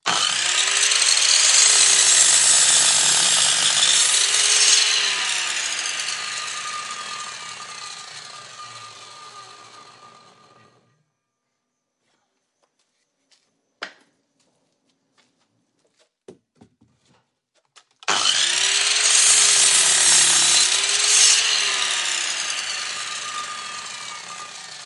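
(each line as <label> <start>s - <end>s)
A saw cutting into a material at moderate volume. 0.1s - 5.7s
A saw powers off and fades away. 5.8s - 11.0s
Wood clacking against a hard surface at moderate volume. 13.7s - 14.1s
A saw cutting into a material at moderate volume. 18.0s - 22.3s
A saw powers off and fades away. 22.3s - 24.9s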